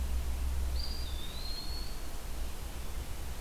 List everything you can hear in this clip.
Eastern Wood-Pewee